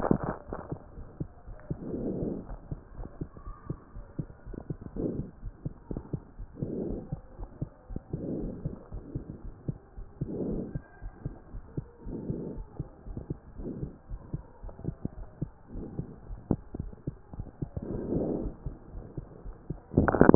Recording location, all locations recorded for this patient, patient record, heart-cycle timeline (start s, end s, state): aortic valve (AV)
aortic valve (AV)+pulmonary valve (PV)+tricuspid valve (TV)+mitral valve (MV)
#Age: Child
#Sex: Male
#Height: 131.0 cm
#Weight: 32.0 kg
#Pregnancy status: False
#Murmur: Absent
#Murmur locations: nan
#Most audible location: nan
#Systolic murmur timing: nan
#Systolic murmur shape: nan
#Systolic murmur grading: nan
#Systolic murmur pitch: nan
#Systolic murmur quality: nan
#Diastolic murmur timing: nan
#Diastolic murmur shape: nan
#Diastolic murmur grading: nan
#Diastolic murmur pitch: nan
#Diastolic murmur quality: nan
#Outcome: Normal
#Campaign: 2015 screening campaign
0.00	10.80	unannotated
10.80	10.99	diastole
10.99	11.13	S1
11.13	11.23	systole
11.23	11.34	S2
11.34	11.52	diastole
11.52	11.62	S1
11.62	11.77	systole
11.77	11.86	S2
11.86	12.03	diastole
12.03	12.20	S1
12.20	12.28	systole
12.28	12.42	S2
12.42	12.55	diastole
12.55	12.67	S1
12.67	12.78	systole
12.78	12.86	S2
12.86	13.04	diastole
13.04	13.17	S1
13.17	13.28	systole
13.28	13.38	S2
13.38	13.60	diastole
13.60	13.70	S1
13.70	13.80	systole
13.80	13.89	S2
13.89	14.08	diastole
14.08	14.20	S1
14.20	14.30	systole
14.30	14.42	S2
14.42	14.62	diastole
14.62	14.74	S1
14.74	14.84	systole
14.84	14.95	S2
14.95	15.14	diastole
15.14	15.26	S1
15.26	15.40	systole
15.40	15.54	S2
15.54	15.72	diastole
15.72	15.85	S1
15.85	15.96	systole
15.96	16.08	S2
16.08	16.27	diastole
16.27	16.39	S1
16.39	16.49	systole
16.49	16.60	S2
16.60	16.78	diastole
16.78	20.35	unannotated